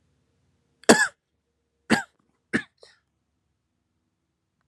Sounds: Cough